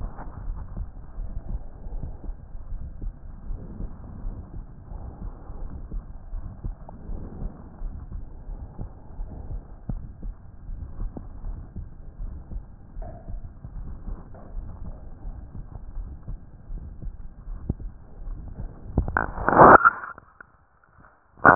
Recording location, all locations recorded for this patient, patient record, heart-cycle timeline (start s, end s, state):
pulmonary valve (PV)
aortic valve (AV)+pulmonary valve (PV)+tricuspid valve (TV)+mitral valve (MV)
#Age: Adolescent
#Sex: Male
#Height: 148.0 cm
#Weight: 35.8 kg
#Pregnancy status: False
#Murmur: Present
#Murmur locations: aortic valve (AV)+mitral valve (MV)+pulmonary valve (PV)+tricuspid valve (TV)
#Most audible location: tricuspid valve (TV)
#Systolic murmur timing: Early-systolic
#Systolic murmur shape: Plateau
#Systolic murmur grading: II/VI
#Systolic murmur pitch: Low
#Systolic murmur quality: Harsh
#Diastolic murmur timing: nan
#Diastolic murmur shape: nan
#Diastolic murmur grading: nan
#Diastolic murmur pitch: nan
#Diastolic murmur quality: nan
#Outcome: Abnormal
#Campaign: 2015 screening campaign
0.00	2.43	unannotated
2.43	2.68	diastole
2.68	2.84	S1
2.84	3.00	systole
3.00	3.14	S2
3.14	3.46	diastole
3.46	3.60	S1
3.60	3.76	systole
3.76	3.92	S2
3.92	4.20	diastole
4.20	4.36	S1
4.36	4.53	systole
4.53	4.66	S2
4.66	4.90	diastole
4.90	5.06	S1
5.06	5.20	systole
5.20	5.34	S2
5.34	5.57	diastole
5.57	5.72	S1
5.72	5.89	systole
5.89	6.04	S2
6.04	6.30	diastole
6.30	6.46	S1
6.46	6.62	systole
6.62	6.76	S2
6.76	7.08	diastole
7.08	7.22	S1
7.22	7.38	systole
7.38	7.52	S2
7.52	7.79	diastole
7.79	7.98	S1
7.98	8.11	systole
8.11	8.22	S2
8.22	8.45	diastole
8.45	8.60	S1
8.60	8.77	systole
8.77	8.92	S2
8.92	9.16	diastole
9.16	9.30	S1
9.30	9.48	systole
9.48	9.62	S2
9.62	9.88	diastole
9.88	10.04	S1
10.04	10.20	systole
10.20	10.34	S2
10.34	10.63	diastole
10.63	10.82	S1
10.82	10.97	systole
10.97	11.12	S2
11.12	11.42	diastole
11.42	11.60	S1
11.60	11.74	systole
11.74	11.89	S2
11.89	12.18	diastole
12.18	12.34	S1
12.34	12.50	systole
12.50	12.64	S2
12.64	12.98	diastole
12.98	13.12	S1
13.12	13.30	systole
13.30	13.42	S2
13.42	13.74	diastole
13.74	13.88	S1
13.88	14.06	systole
14.06	14.20	S2
14.20	14.52	diastole
14.52	14.66	S1
14.66	14.80	systole
14.80	14.94	S2
14.94	15.22	diastole
15.22	15.36	S1
15.36	15.52	systole
15.52	15.64	S2
15.64	15.92	diastole
15.92	16.10	S1
16.10	16.28	systole
16.28	16.42	S2
16.42	16.68	diastole
16.68	16.84	S1
16.84	17.00	systole
17.00	17.14	S2
17.14	17.30	diastole
17.30	21.55	unannotated